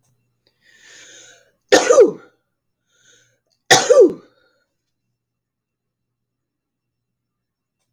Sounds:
Sneeze